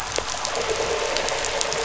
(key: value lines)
label: anthrophony, boat engine
recorder: SoundTrap 500